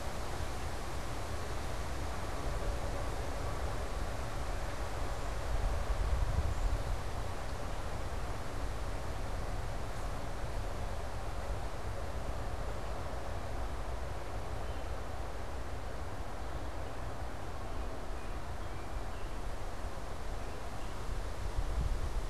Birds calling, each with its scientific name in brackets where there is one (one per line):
unidentified bird
American Robin (Turdus migratorius)